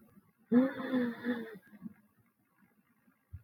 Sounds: Sigh